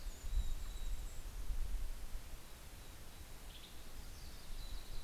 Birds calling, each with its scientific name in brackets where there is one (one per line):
Mountain Chickadee (Poecile gambeli)
American Robin (Turdus migratorius)
Western Tanager (Piranga ludoviciana)
Yellow-rumped Warbler (Setophaga coronata)